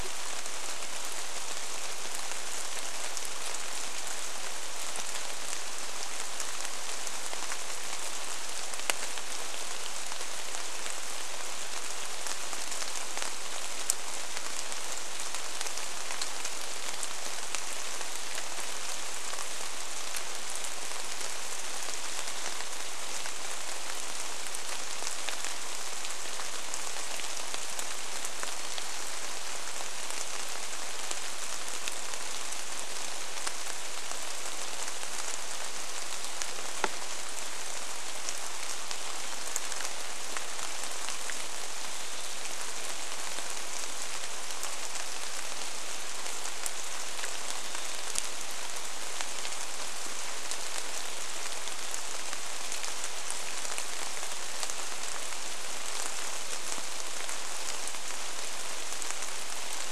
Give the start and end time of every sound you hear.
[0, 60] rain
[28, 30] Varied Thrush song
[46, 48] Varied Thrush song

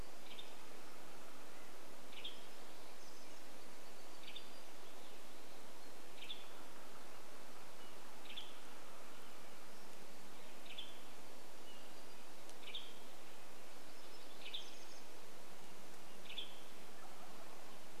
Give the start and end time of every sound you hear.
[0, 6] warbler song
[0, 18] Western Tanager call
[10, 16] warbler song
[16, 18] Wild Turkey song

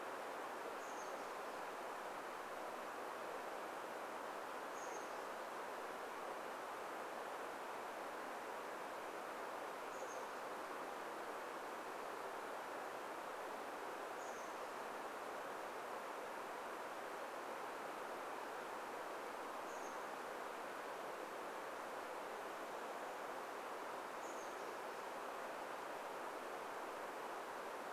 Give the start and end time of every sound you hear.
[0, 2] Chestnut-backed Chickadee call
[4, 6] Chestnut-backed Chickadee call
[10, 12] Chestnut-backed Chickadee call
[14, 16] Chestnut-backed Chickadee call
[18, 20] Chestnut-backed Chickadee call
[24, 26] Chestnut-backed Chickadee call

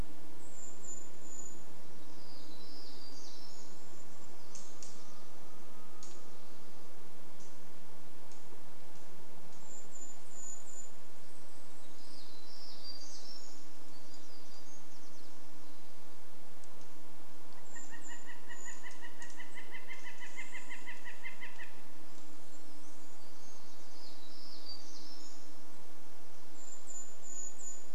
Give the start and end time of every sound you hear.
[0, 2] Brown Creeper call
[0, 10] vehicle engine
[2, 4] warbler song
[4, 10] unidentified bird chip note
[8, 12] Brown Creeper call
[12, 16] airplane
[12, 16] warbler song
[16, 20] Brown Creeper call
[16, 22] Northern Flicker call
[18, 20] airplane
[18, 20] unidentified bird chip note
[22, 24] Brown Creeper song
[24, 26] airplane
[24, 26] warbler song
[26, 28] Brown Creeper call

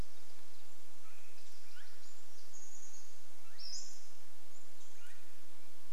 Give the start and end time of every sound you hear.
[0, 6] Swainson's Thrush call
[2, 4] Chestnut-backed Chickadee call
[2, 4] Pacific-slope Flycatcher call

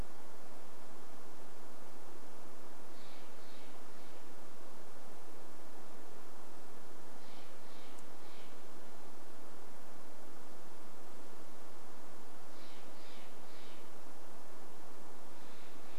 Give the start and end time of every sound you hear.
[2, 10] Steller's Jay call
[12, 16] Steller's Jay call

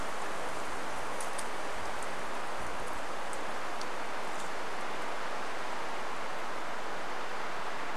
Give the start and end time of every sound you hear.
[2, 6] insect buzz

